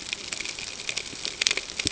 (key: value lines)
label: ambient
recorder: HydroMoth